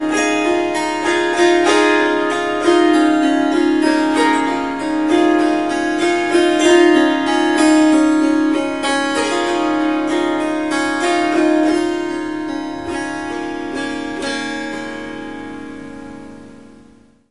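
A swarmandal plays melodic music with soft, rippling notes. 0:00.0 - 0:17.3

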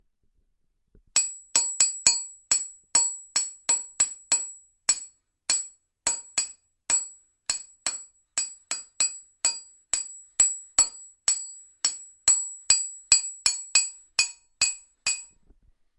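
The metallic sound of a small hammer or chisel repeating irregularly several times. 0:01.1 - 0:15.2

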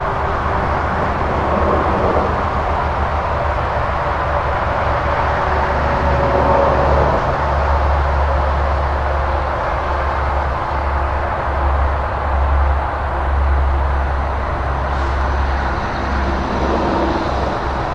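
Engine noises from cars and trucks passing on the highway. 0:00.0 - 0:17.9
An engine noise from a passing truck on the highway. 0:01.5 - 0:02.3
A car passes by on the highway with a loud engine noise. 0:11.4 - 0:14.1
A car passes by on the highway with a loud engine noise. 0:15.1 - 0:15.9

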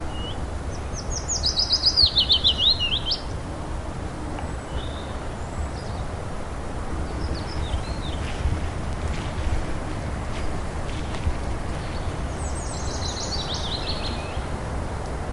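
Birds singing in the forest. 0:00.0 - 0:15.3
A stream of water flowing in the forest. 0:03.3 - 0:08.6
Footsteps on branches and leaves in a forest. 0:08.6 - 0:13.0

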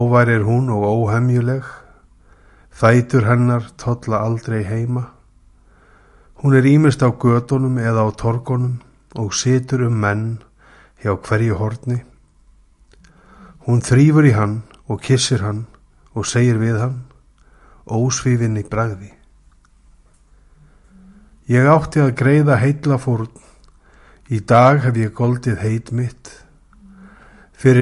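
A priest is reading. 0:06.2 - 0:23.5

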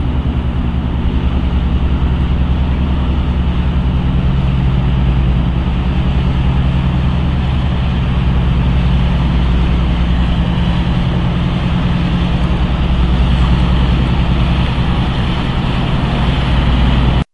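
A diesel-powered ship engine running steadily. 0:00.0 - 0:17.3

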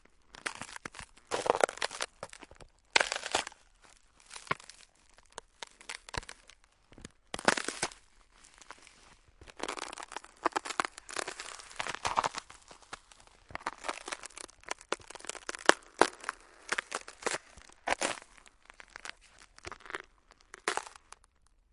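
Footsteps on a frozen surface. 0:00.0 - 0:21.7

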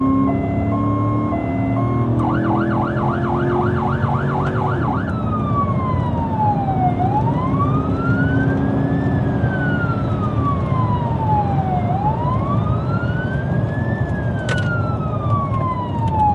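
A rhythmic siren sounds. 0:00.0 - 0:16.3
An engine is running. 0:00.0 - 0:16.3

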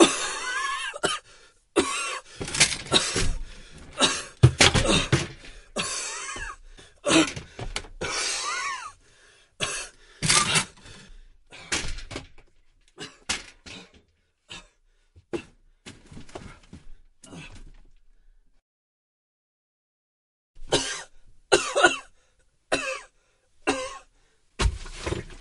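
A person coughs repeatedly and for a long duration. 0:00.0 - 0:18.8
A person coughs several times briefly. 0:20.3 - 0:24.5
A dull, muffled sound of a door shutting. 0:24.5 - 0:25.4

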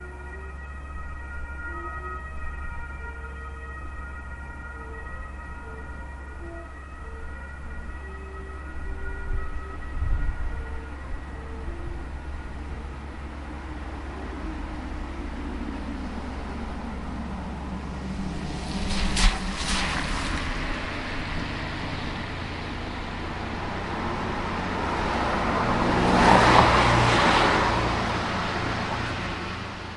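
An ambulance siren is heard in the distance. 0:00.0 - 0:11.9
Rain pouring on the ground. 0:00.0 - 0:11.9
A car driving on a wet road. 0:15.2 - 0:20.5
A car drives quickly on a wet road. 0:21.5 - 0:30.0

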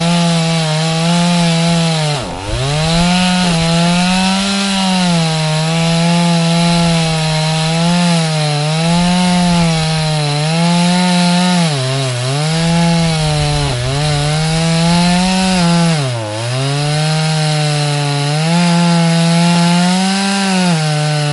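A chainsaw engine hums at high speed. 0:00.0 - 0:21.2
A chainsaw gets stuck. 0:02.3 - 0:02.4
A chainsaw gets stuck. 0:16.2 - 0:16.3

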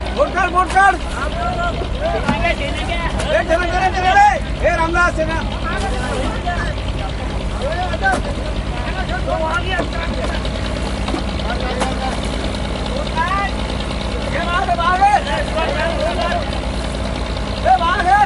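People shouting with a continuous engine running in the background. 0:00.0 - 0:18.3

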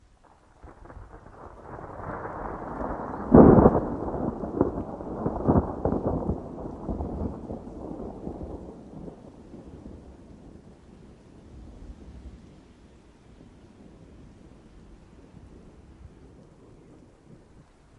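Static white noise repeats. 0:00.0 - 0:18.0
Rumbling thunder repeats. 0:00.7 - 0:10.0
A loud thunderclap during a thunderstorm. 0:03.3 - 0:03.9
A thunder blast during a storm. 0:05.5 - 0:06.4

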